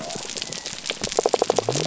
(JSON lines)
{"label": "biophony", "recorder": "SoundTrap 300"}